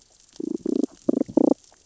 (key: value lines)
label: biophony, damselfish
recorder: SoundTrap 600 or HydroMoth